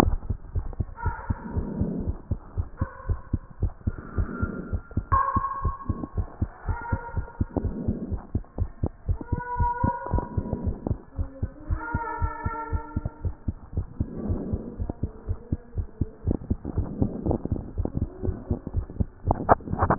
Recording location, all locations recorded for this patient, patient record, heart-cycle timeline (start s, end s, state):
tricuspid valve (TV)
aortic valve (AV)+pulmonary valve (PV)+tricuspid valve (TV)+mitral valve (MV)
#Age: Child
#Sex: Male
#Height: 131.0 cm
#Weight: 24.9 kg
#Pregnancy status: False
#Murmur: Absent
#Murmur locations: nan
#Most audible location: nan
#Systolic murmur timing: nan
#Systolic murmur shape: nan
#Systolic murmur grading: nan
#Systolic murmur pitch: nan
#Systolic murmur quality: nan
#Diastolic murmur timing: nan
#Diastolic murmur shape: nan
#Diastolic murmur grading: nan
#Diastolic murmur pitch: nan
#Diastolic murmur quality: nan
#Outcome: Abnormal
#Campaign: 2014 screening campaign
0.00	0.02	diastole
0.02	0.18	S1
0.18	0.28	systole
0.28	0.38	S2
0.38	0.54	diastole
0.54	0.66	S1
0.66	0.78	systole
0.78	0.86	S2
0.86	1.04	diastole
1.04	1.16	S1
1.16	1.28	systole
1.28	1.38	S2
1.38	1.54	diastole
1.54	1.66	S1
1.66	1.78	systole
1.78	1.90	S2
1.90	2.04	diastole
2.04	2.16	S1
2.16	2.30	systole
2.30	2.38	S2
2.38	2.56	diastole
2.56	2.66	S1
2.66	2.80	systole
2.80	2.88	S2
2.88	3.08	diastole
3.08	3.20	S1
3.20	3.32	systole
3.32	3.40	S2
3.40	3.62	diastole
3.62	3.72	S1
3.72	3.86	systole
3.86	3.96	S2
3.96	4.18	diastole
4.18	4.28	S1
4.28	4.40	systole
4.40	4.52	S2
4.52	4.72	diastole
4.72	4.82	S1
4.82	4.96	systole
4.96	5.02	S2
5.02	5.12	diastole
5.12	5.22	S1
5.22	5.34	systole
5.34	5.44	S2
5.44	5.64	diastole
5.64	5.74	S1
5.74	5.88	systole
5.88	5.98	S2
5.98	6.16	diastole
6.16	6.28	S1
6.28	6.40	systole
6.40	6.50	S2
6.50	6.66	diastole
6.66	6.78	S1
6.78	6.90	systole
6.90	7.00	S2
7.00	7.16	diastole
7.16	7.26	S1
7.26	7.38	systole
7.38	7.48	S2
7.48	7.62	diastole
7.62	7.74	S1
7.74	7.86	systole
7.86	7.96	S2
7.96	8.10	diastole
8.10	8.20	S1
8.20	8.34	systole
8.34	8.42	S2
8.42	8.58	diastole
8.58	8.70	S1
8.70	8.82	systole
8.82	8.90	S2
8.90	9.08	diastole
9.08	9.18	S1
9.18	9.32	systole
9.32	9.40	S2
9.40	9.58	diastole
9.58	9.70	S1
9.70	9.82	systole
9.82	9.92	S2
9.92	10.12	diastole
10.12	10.24	S1
10.24	10.36	systole
10.36	10.44	S2
10.44	10.64	diastole
10.64	10.76	S1
10.76	10.88	systole
10.88	10.98	S2
10.98	11.18	diastole
11.18	11.28	S1
11.28	11.42	systole
11.42	11.50	S2
11.50	11.68	diastole
11.68	11.80	S1
11.80	11.94	systole
11.94	12.02	S2
12.02	12.20	diastole
12.20	12.32	S1
12.32	12.44	systole
12.44	12.54	S2
12.54	12.72	diastole
12.72	12.82	S1
12.82	12.96	systole
12.96	13.04	S2
13.04	13.24	diastole
13.24	13.34	S1
13.34	13.46	systole
13.46	13.56	S2
13.56	13.76	diastole
13.76	13.86	S1
13.86	13.98	systole
13.98	14.08	S2
14.08	14.26	diastole
14.26	14.40	S1
14.40	14.50	systole
14.50	14.60	S2
14.60	14.80	diastole
14.80	14.90	S1
14.90	15.02	systole
15.02	15.12	S2
15.12	15.28	diastole
15.28	15.38	S1
15.38	15.50	systole
15.50	15.60	S2
15.60	15.76	diastole
15.76	15.86	S1
15.86	16.00	systole
16.00	16.08	S2
16.08	16.26	diastole
16.26	16.38	S1
16.38	16.50	systole
16.50	16.58	S2
16.58	16.76	diastole
16.76	16.88	S1
16.88	17.00	systole
17.00	17.10	S2
17.10	17.26	diastole
17.26	17.38	S1
17.38	17.50	systole
17.50	17.62	S2
17.62	17.78	diastole
17.78	17.88	S1
17.88	17.98	systole
17.98	18.08	S2
18.08	18.24	diastole
18.24	18.36	S1
18.36	18.50	systole
18.50	18.58	S2
18.58	18.74	diastole
18.74	18.86	S1
18.86	18.98	systole
18.98	19.08	S2
19.08	19.26	diastole
19.26	19.38	S1
19.38	19.48	systole
19.48	19.58	S2
19.58	19.80	diastole
19.80	19.94	S1
19.94	19.98	systole